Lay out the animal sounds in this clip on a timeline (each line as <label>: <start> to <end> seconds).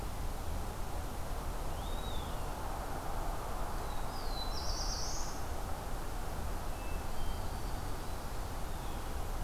Eastern Wood-Pewee (Contopus virens): 1.6 to 2.6 seconds
Black-throated Blue Warbler (Setophaga caerulescens): 3.6 to 5.5 seconds
Hermit Thrush (Catharus guttatus): 6.7 to 8.0 seconds
Black-throated Green Warbler (Setophaga virens): 6.9 to 8.4 seconds
Blue Jay (Cyanocitta cristata): 8.6 to 9.4 seconds